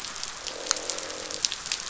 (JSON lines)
{"label": "biophony, croak", "recorder": "SoundTrap 500"}